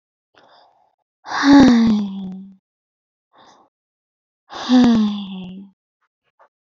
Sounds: Sigh